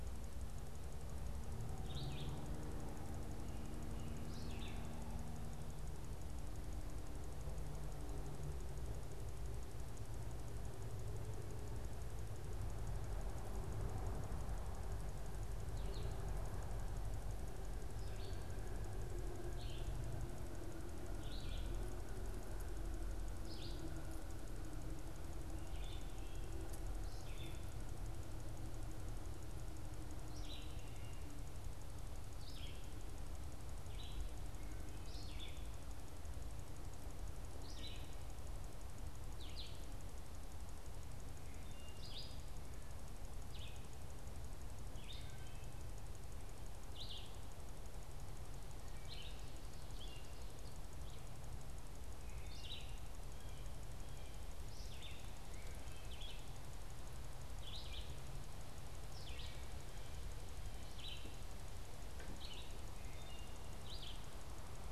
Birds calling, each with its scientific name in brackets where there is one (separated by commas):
Red-eyed Vireo (Vireo olivaceus), Wood Thrush (Hylocichla mustelina)